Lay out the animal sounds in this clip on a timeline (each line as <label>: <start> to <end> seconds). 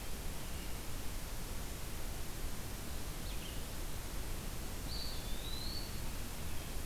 Red-eyed Vireo (Vireo olivaceus): 0.1 to 6.8 seconds
Eastern Wood-Pewee (Contopus virens): 4.7 to 6.1 seconds